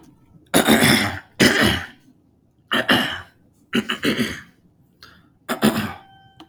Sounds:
Throat clearing